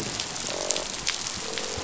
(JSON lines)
{"label": "biophony, croak", "recorder": "SoundTrap 500"}